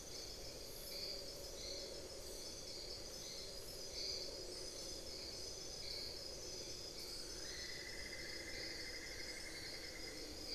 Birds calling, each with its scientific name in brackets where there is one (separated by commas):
Cinnamon-throated Woodcreeper (Dendrexetastes rufigula), unidentified bird